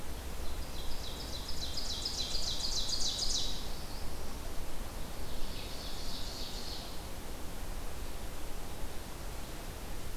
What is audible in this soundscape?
Ovenbird